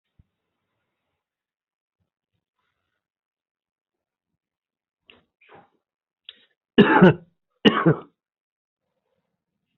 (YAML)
expert_labels:
- quality: good
  cough_type: unknown
  dyspnea: false
  wheezing: false
  stridor: false
  choking: false
  congestion: false
  nothing: true
  diagnosis: upper respiratory tract infection
  severity: unknown
age: 50
gender: male
respiratory_condition: true
fever_muscle_pain: false
status: healthy